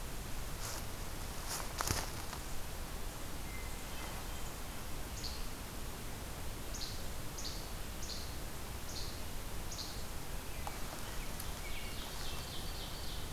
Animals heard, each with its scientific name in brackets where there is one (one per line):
Hermit Thrush (Catharus guttatus)
Ovenbird (Seiurus aurocapilla)
Least Flycatcher (Empidonax minimus)
American Robin (Turdus migratorius)